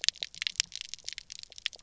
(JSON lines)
{"label": "biophony, pulse", "recorder": "SoundTrap 300"}